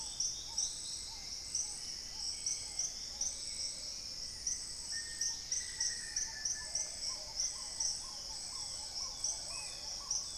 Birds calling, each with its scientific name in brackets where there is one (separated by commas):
Spot-winged Antshrike (Pygiptila stellaris), Paradise Tanager (Tangara chilensis), Dusky-capped Greenlet (Pachysylvia hypoxantha), Plumbeous Pigeon (Patagioenas plumbea), Dusky-throated Antshrike (Thamnomanes ardesiacus), Black-tailed Trogon (Trogon melanurus), Black-faced Antthrush (Formicarius analis), Hauxwell's Thrush (Turdus hauxwelli), Long-winged Antwren (Myrmotherula longipennis)